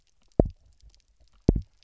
{"label": "biophony, double pulse", "recorder": "SoundTrap 300"}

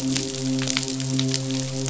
{"label": "biophony, midshipman", "recorder": "SoundTrap 500"}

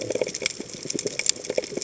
{"label": "biophony, chatter", "recorder": "HydroMoth"}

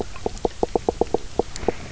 {"label": "biophony, knock croak", "recorder": "SoundTrap 300"}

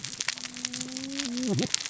{"label": "biophony, cascading saw", "recorder": "SoundTrap 600 or HydroMoth"}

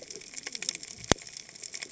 {"label": "biophony, cascading saw", "recorder": "HydroMoth"}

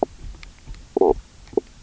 {"label": "biophony, knock croak", "recorder": "SoundTrap 300"}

